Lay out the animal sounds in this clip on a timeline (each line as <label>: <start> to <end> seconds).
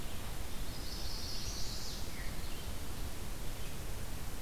Chestnut-sided Warbler (Setophaga pensylvanica): 0.5 to 2.2 seconds